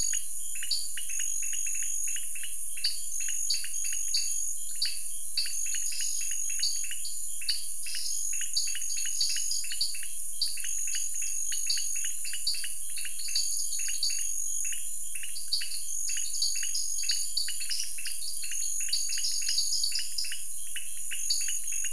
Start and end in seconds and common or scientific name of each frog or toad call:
0.0	1.0	dwarf tree frog
0.0	21.9	pointedbelly frog
2.8	14.1	dwarf tree frog
15.3	20.4	dwarf tree frog
21.2	21.6	dwarf tree frog